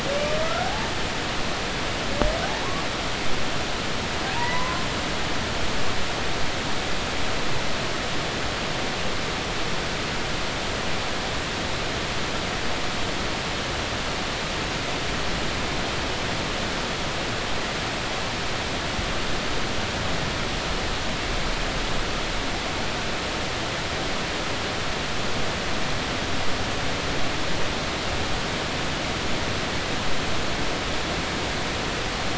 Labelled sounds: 0.4	0.9	humpback whale, 0.80 to 1.6 kHz
4.3	4.9	humpback whale, 0.90 to 1.2 kHz

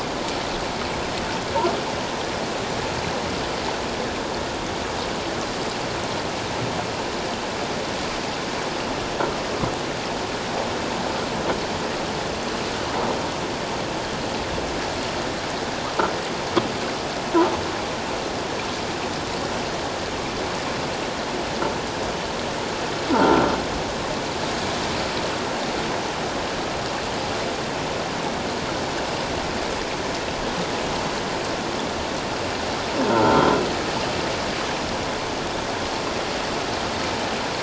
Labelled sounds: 23.1	23.4	croaking sound likely from a nearby submerged object, 1.2 to 1.5 kHz
33.2	33.5	croaking sound likely from a nearby submerged object, 1.3 to 1.5 kHz

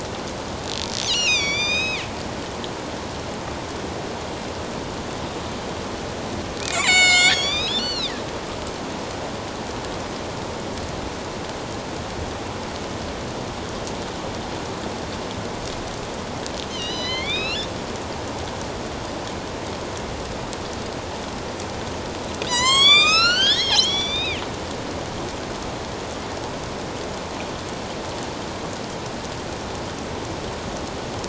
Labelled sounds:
1.0	2.0	killer whale, northern resident, A clan, AB subclan, 1.9 to 7.8 kHz
6.6	8.1	killer whale, northern resident, A clan, AB subclan, 1.1 to 8.0 kHz
16.7	17.7	killer whale, northern resident, A clan, AB subclan, 1.9 to 6.3 kHz
22.5	24.4	killer whale, northern resident, A clan, AB subclan, 0.91 to 8.0 kHz

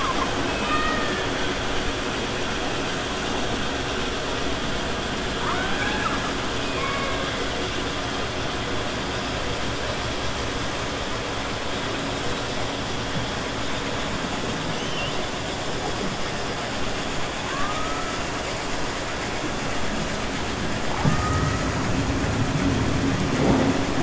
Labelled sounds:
17.4	18.1	killer whale, 1.0 to 2.6 kHz

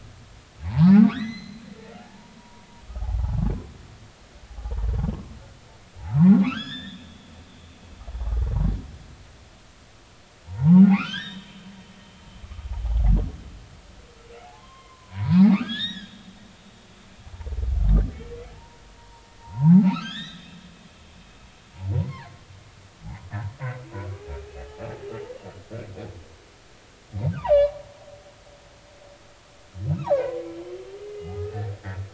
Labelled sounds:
0.6	2.7	humpback whale, 0.80 to 6.4 kHz
4.6	4.9	humpback whale, 0.80 to 1.0 kHz
6.0	7.1	humpback whale, 0.80 to 5.4 kHz
10.9	11.8	humpback whale, 0.80 to 7.5 kHz
12.7	13.1	humpback whale, 0.80 to 0.99 kHz
14.5	16.2	humpback whale, 0.80 to 5.8 kHz
18.5	20.5	humpback whale, 0.80 to 4.0 kHz
21.9	22.4	humpback whale, 0.80 to 2.2 kHz
27.3	27.7	humpback whale, 0.80 to 4.8 kHz
30.1	30.4	humpback whale, 1.4 to 2.3 kHz
31.0	31.5	humpback whale, 1.2 to 2.1 kHz

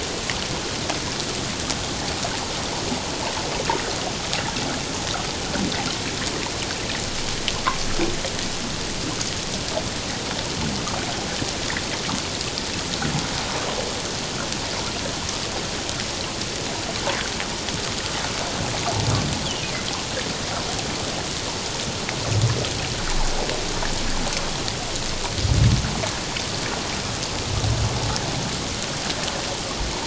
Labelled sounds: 19.4	19.7	humpback whale, 2.8 to 3.5 kHz

